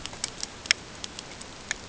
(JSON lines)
{"label": "ambient", "recorder": "HydroMoth"}